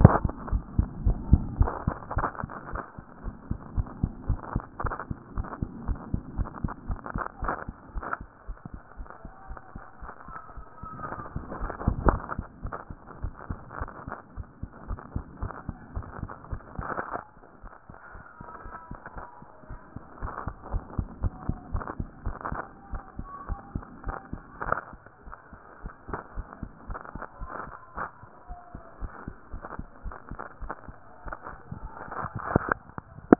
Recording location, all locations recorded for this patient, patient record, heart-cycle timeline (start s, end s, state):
tricuspid valve (TV)
aortic valve (AV)+pulmonary valve (PV)+tricuspid valve (TV)+mitral valve (MV)
#Age: Child
#Sex: Female
#Height: 103.0 cm
#Weight: 17.3 kg
#Pregnancy status: False
#Murmur: Absent
#Murmur locations: nan
#Most audible location: nan
#Systolic murmur timing: nan
#Systolic murmur shape: nan
#Systolic murmur grading: nan
#Systolic murmur pitch: nan
#Systolic murmur quality: nan
#Diastolic murmur timing: nan
#Diastolic murmur shape: nan
#Diastolic murmur grading: nan
#Diastolic murmur pitch: nan
#Diastolic murmur quality: nan
#Outcome: Normal
#Campaign: 2014 screening campaign
0.00	0.36	unannotated
0.36	0.50	diastole
0.50	0.64	S1
0.64	0.76	systole
0.76	0.88	S2
0.88	1.02	diastole
1.02	1.18	S1
1.18	1.26	systole
1.26	1.40	S2
1.40	1.60	diastole
1.60	1.72	S1
1.72	1.86	systole
1.86	1.94	S2
1.94	2.16	diastole
2.16	2.28	S1
2.28	2.42	systole
2.42	2.52	S2
2.52	2.70	diastole
2.70	2.82	S1
2.82	2.96	systole
2.96	3.04	S2
3.04	3.24	diastole
3.24	3.36	S1
3.36	3.48	systole
3.48	3.58	S2
3.58	3.76	diastole
3.76	3.88	S1
3.88	4.00	systole
4.00	4.12	S2
4.12	4.28	diastole
4.28	4.40	S1
4.40	4.54	systole
4.54	4.64	S2
4.64	4.82	diastole
4.82	4.94	S1
4.94	5.08	systole
5.08	5.18	S2
5.18	5.36	diastole
5.36	5.48	S1
5.48	5.60	systole
5.60	5.70	S2
5.70	5.86	diastole
5.86	5.98	S1
5.98	6.12	systole
6.12	6.22	S2
6.22	6.36	diastole
6.36	6.48	S1
6.48	6.62	systole
6.62	6.72	S2
6.72	6.88	diastole
6.88	33.39	unannotated